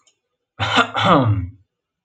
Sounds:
Throat clearing